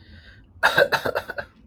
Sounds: Cough